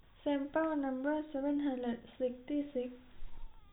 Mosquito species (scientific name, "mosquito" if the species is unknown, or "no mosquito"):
no mosquito